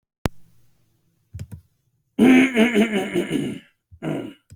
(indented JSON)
{
  "expert_labels": [
    {
      "quality": "no cough present",
      "dyspnea": false,
      "wheezing": false,
      "stridor": false,
      "choking": false,
      "congestion": false,
      "nothing": false
    }
  ],
  "age": 41,
  "gender": "male",
  "respiratory_condition": false,
  "fever_muscle_pain": false,
  "status": "COVID-19"
}